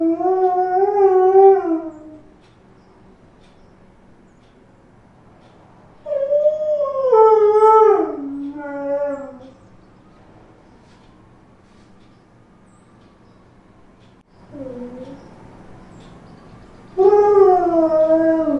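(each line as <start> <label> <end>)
0.0 A dog howls. 2.4
5.9 A dog howls. 9.8
14.4 A dog whines. 16.3
16.8 A dog howls. 18.6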